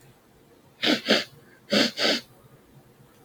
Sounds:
Sniff